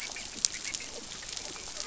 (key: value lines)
label: biophony, dolphin
recorder: SoundTrap 500